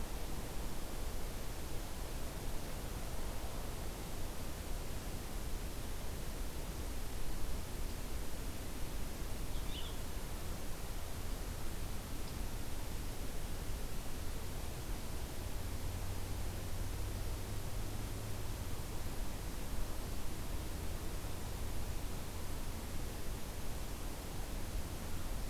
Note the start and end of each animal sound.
[9.41, 10.07] Purple Finch (Haemorhous purpureus)

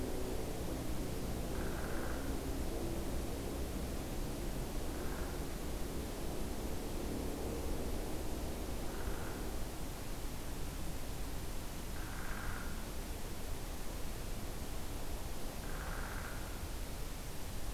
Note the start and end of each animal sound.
[1.44, 2.33] Downy Woodpecker (Dryobates pubescens)
[4.78, 5.40] Downy Woodpecker (Dryobates pubescens)
[8.80, 9.49] Downy Woodpecker (Dryobates pubescens)
[11.85, 12.79] Downy Woodpecker (Dryobates pubescens)
[15.53, 16.63] Downy Woodpecker (Dryobates pubescens)

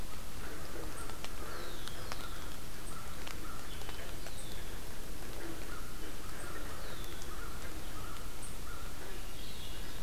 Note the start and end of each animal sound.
[0.30, 9.02] American Crow (Corvus brachyrhynchos)
[1.30, 2.45] Red-winged Blackbird (Agelaius phoeniceus)
[4.14, 4.79] Red-winged Blackbird (Agelaius phoeniceus)
[6.63, 7.38] Red-winged Blackbird (Agelaius phoeniceus)
[8.73, 10.03] Swainson's Thrush (Catharus ustulatus)
[9.25, 9.99] Red-winged Blackbird (Agelaius phoeniceus)

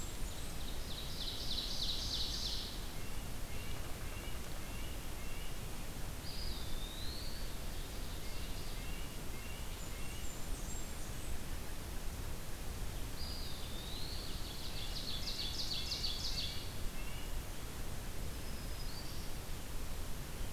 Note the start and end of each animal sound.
[0.00, 0.60] Blackburnian Warbler (Setophaga fusca)
[0.00, 2.93] Ovenbird (Seiurus aurocapilla)
[2.95, 5.76] Red-breasted Nuthatch (Sitta canadensis)
[6.14, 7.76] Eastern Wood-Pewee (Contopus virens)
[7.40, 8.93] Ovenbird (Seiurus aurocapilla)
[8.15, 10.35] Red-breasted Nuthatch (Sitta canadensis)
[9.61, 11.47] Blackburnian Warbler (Setophaga fusca)
[12.90, 14.33] Eastern Wood-Pewee (Contopus virens)
[14.00, 16.86] Ovenbird (Seiurus aurocapilla)
[14.69, 17.33] Red-breasted Nuthatch (Sitta canadensis)
[18.12, 19.72] Black-throated Green Warbler (Setophaga virens)

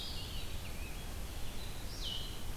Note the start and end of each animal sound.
[0.00, 1.38] Scarlet Tanager (Piranga olivacea)
[0.00, 2.56] Blue-headed Vireo (Vireo solitarius)

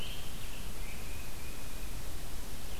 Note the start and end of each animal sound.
[0.00, 2.80] Red-eyed Vireo (Vireo olivaceus)
[0.76, 1.99] Tufted Titmouse (Baeolophus bicolor)

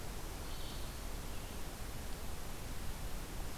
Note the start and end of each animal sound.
[0.00, 3.57] Red-eyed Vireo (Vireo olivaceus)

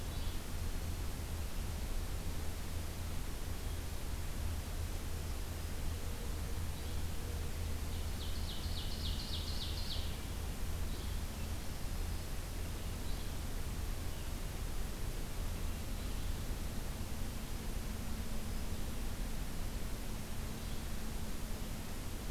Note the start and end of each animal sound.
[0.03, 0.41] Yellow-bellied Flycatcher (Empidonax flaviventris)
[6.72, 6.98] Yellow-bellied Flycatcher (Empidonax flaviventris)
[7.85, 10.14] Ovenbird (Seiurus aurocapilla)
[10.85, 11.19] Yellow-bellied Flycatcher (Empidonax flaviventris)
[11.70, 12.50] Black-throated Green Warbler (Setophaga virens)
[13.03, 13.30] Yellow-bellied Flycatcher (Empidonax flaviventris)
[15.95, 16.32] Yellow-bellied Flycatcher (Empidonax flaviventris)
[20.52, 20.89] Yellow-bellied Flycatcher (Empidonax flaviventris)

